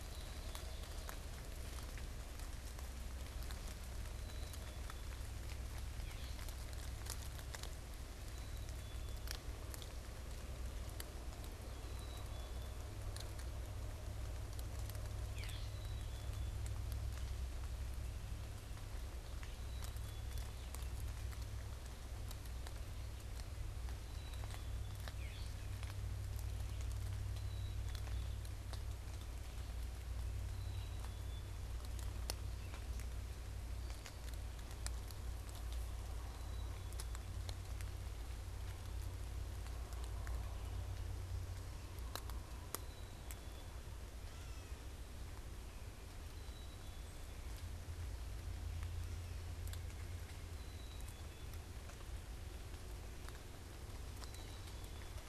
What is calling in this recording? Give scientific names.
Poecile atricapillus, Dumetella carolinensis